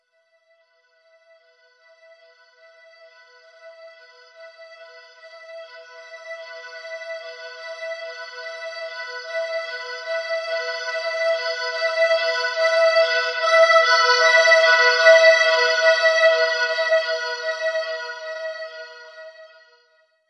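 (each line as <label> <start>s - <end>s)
An ambulance siren starts softly, gradually gets louder, then fades and disappears. 0.3s - 19.8s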